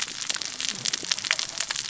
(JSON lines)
{"label": "biophony, cascading saw", "recorder": "SoundTrap 600 or HydroMoth"}